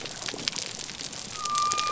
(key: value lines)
label: biophony
recorder: SoundTrap 300